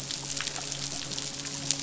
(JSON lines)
{"label": "biophony, midshipman", "recorder": "SoundTrap 500"}